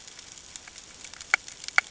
{"label": "ambient", "recorder": "HydroMoth"}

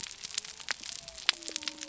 {"label": "biophony", "recorder": "SoundTrap 300"}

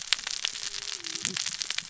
{"label": "biophony, cascading saw", "recorder": "SoundTrap 600 or HydroMoth"}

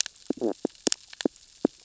{"label": "biophony, stridulation", "recorder": "SoundTrap 600 or HydroMoth"}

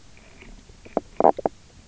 {"label": "biophony, knock croak", "recorder": "SoundTrap 300"}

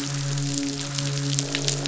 {"label": "biophony, midshipman", "recorder": "SoundTrap 500"}
{"label": "biophony, croak", "recorder": "SoundTrap 500"}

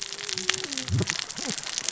{"label": "biophony, cascading saw", "recorder": "SoundTrap 600 or HydroMoth"}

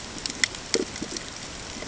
{"label": "ambient", "recorder": "HydroMoth"}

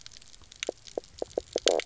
{"label": "biophony, knock croak", "recorder": "SoundTrap 300"}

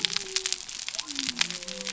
{"label": "biophony", "recorder": "SoundTrap 300"}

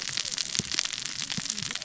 {"label": "biophony, cascading saw", "recorder": "SoundTrap 600 or HydroMoth"}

